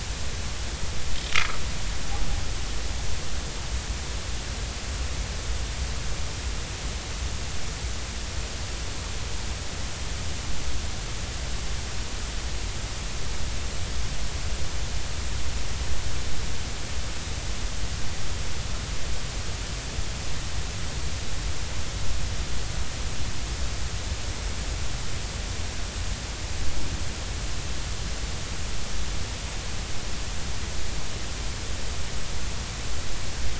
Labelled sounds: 1.3	1.6	vessel noise, 1.1 to 1.4 kHz

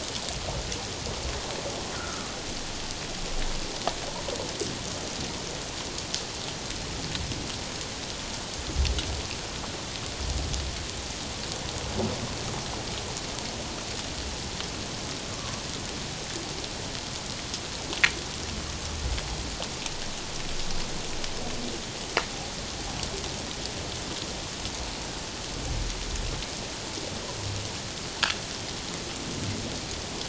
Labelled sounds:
1.9	2.3	humpback whale, 1.1 to 1.5 kHz
15.3	15.6	humpback whale, 1.0 to 1.2 kHz

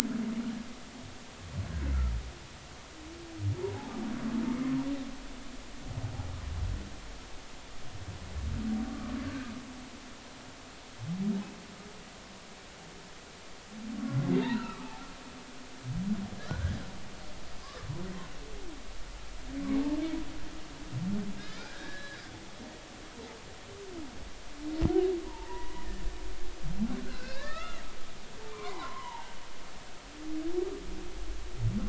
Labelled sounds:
8.9	9.1	humpback whale, 1.1 to 1.3 kHz
14.3	15.0	humpback whale, 0.80 to 2.8 kHz
16.4	16.8	humpback whale, 1.3 to 1.8 kHz
21.4	22.2	humpback whale, 1.3 to 1.9 kHz
25.2	25.7	humpback whale, 0.83 to 2.0 kHz
27.0	27.8	humpback whale, 0.99 to 2.8 kHz
28.5	29.3	humpback whale, 0.80 to 2.4 kHz

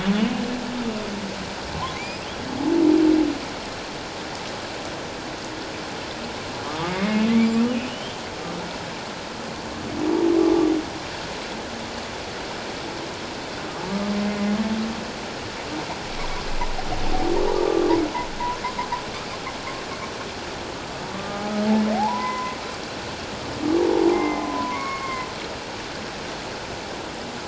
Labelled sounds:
1.9	2.2	humpback whale, 2.0 to 2.6 kHz
6.6	7.6	humpback whale, 1.1 to 2.5 kHz
7.9	8.2	humpback whale, 2.8 to 3.3 kHz
21.1	22.5	humpback whale, 0.78 to 2.1 kHz
24.1	25.3	humpback whale, 0.94 to 2.3 kHz

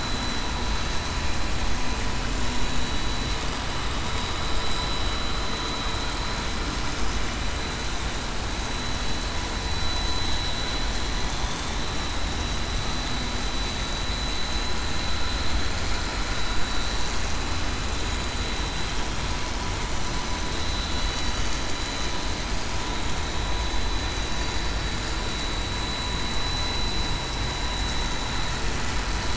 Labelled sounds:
2.7	3.0	vessel noise, 3.87 to 3.94 kHz
12.3	12.6	vessel noise, 3.8 to 3.9 kHz
26.4	27.0	vessel noise, 4.0 to 4.1 kHz

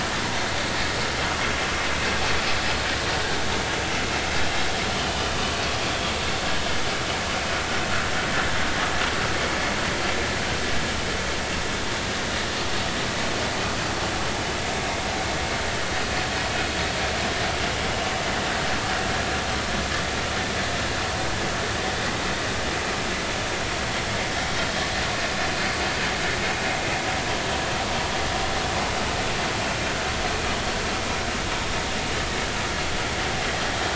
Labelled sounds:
5.0	5.6	vessel noise, 1.0 to 3.1 kHz

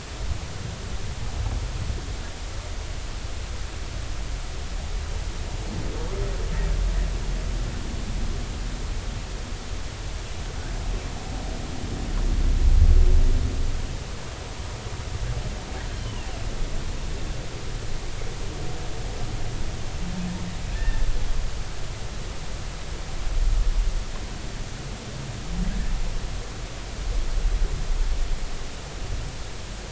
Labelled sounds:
16.0	16.3	humpback whale, 2.5 to 3.1 kHz
20.8	21.1	humpback whale, 1.7 to 1.9 kHz

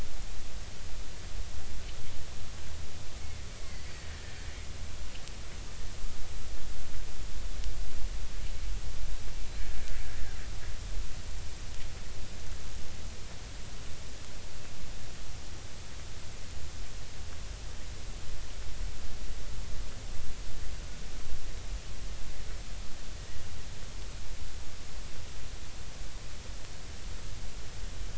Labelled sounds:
3.6	4.4	killer whale, Bigg's (transient), 1.7 to 2.2 kHz

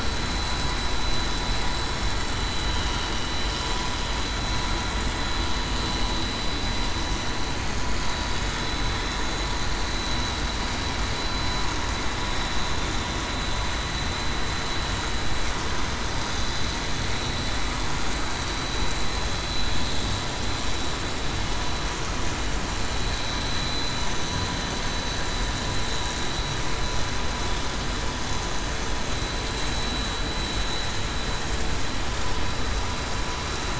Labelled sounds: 29.8	30.2	vessel noise, 3.9 to 4.0 kHz

